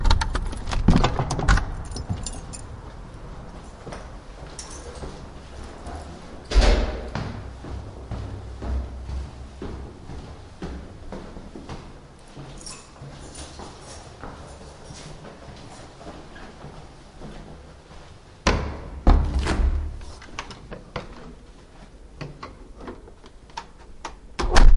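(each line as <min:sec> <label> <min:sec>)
0:00.0 A door creaks and clicks briefly while opening or closing. 0:02.8
0:02.8 Footsteps on stairs with varying intensity and a slight echo. 0:06.3
0:06.3 A door creaks and clicks briefly while opening or closing. 0:07.1
0:07.1 Footsteps on stairs with varying intensity and a slight echo. 0:18.5
0:18.4 Two distinct footsteps with a clear and firm echoing impact. 0:20.0
0:20.0 A long, clear sound of a key turning in a lock is accompanied by a metallic click as the mechanism engages. 0:24.3
0:24.3 A door creaks and clicks briefly while opening or closing. 0:24.8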